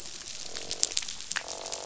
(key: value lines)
label: biophony, croak
recorder: SoundTrap 500